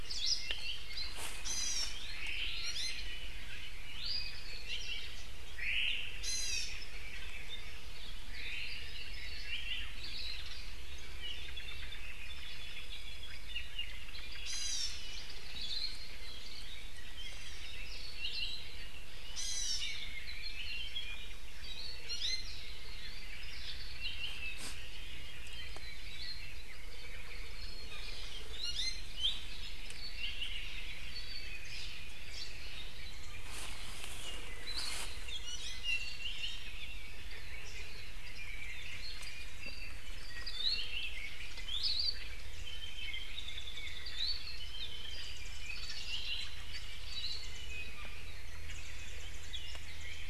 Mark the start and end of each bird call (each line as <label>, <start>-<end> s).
Hawaii Akepa (Loxops coccineus), 0.0-0.5 s
Apapane (Himatione sanguinea), 0.1-1.1 s
Iiwi (Drepanis coccinea), 1.4-2.0 s
Omao (Myadestes obscurus), 2.0-2.8 s
Iiwi (Drepanis coccinea), 2.5-3.1 s
Iiwi (Drepanis coccinea), 3.8-4.5 s
Omao (Myadestes obscurus), 5.5-6.2 s
Iiwi (Drepanis coccinea), 6.1-6.8 s
Omao (Myadestes obscurus), 8.3-8.9 s
Apapane (Himatione sanguinea), 9.4-9.9 s
Hawaii Akepa (Loxops coccineus), 9.9-10.4 s
Omao (Myadestes obscurus), 11.4-12.2 s
Apapane (Himatione sanguinea), 12.2-13.6 s
Omao (Myadestes obscurus), 13.8-14.7 s
Iiwi (Drepanis coccinea), 14.4-15.0 s
Hawaii Akepa (Loxops coccineus), 15.5-16.1 s
Apapane (Himatione sanguinea), 16.1-17.7 s
Apapane (Himatione sanguinea), 18.1-18.7 s
Hawaii Akepa (Loxops coccineus), 18.1-18.7 s
Iiwi (Drepanis coccinea), 19.3-20.0 s
Apapane (Himatione sanguinea), 19.7-21.4 s
Iiwi (Drepanis coccinea), 22.0-22.6 s
Omao (Myadestes obscurus), 23.0-24.0 s
Apapane (Himatione sanguinea), 23.9-24.7 s
Hawaii Akepa (Loxops coccineus), 26.0-26.5 s
Iiwi (Drepanis coccinea), 28.5-29.2 s
Apapane (Himatione sanguinea), 29.1-31.6 s
Hawaii Creeper (Loxops mana), 32.3-32.6 s
Hawaii Akepa (Loxops coccineus), 34.6-35.1 s
Warbling White-eye (Zosterops japonicus), 35.2-36.6 s
Iiwi (Drepanis coccinea), 35.4-36.7 s
Apapane (Himatione sanguinea), 40.4-41.2 s
Iiwi (Drepanis coccinea), 41.6-42.0 s
Hawaii Akepa (Loxops coccineus), 41.7-42.3 s
Apapane (Himatione sanguinea), 42.6-44.5 s
Warbling White-eye (Zosterops japonicus), 43.3-44.0 s
Warbling White-eye (Zosterops japonicus), 45.0-46.2 s
Apapane (Himatione sanguinea), 46.0-46.5 s
Hawaii Akepa (Loxops coccineus), 47.0-47.5 s
Warbling White-eye (Zosterops japonicus), 47.1-47.9 s
Warbling White-eye (Zosterops japonicus), 48.6-50.2 s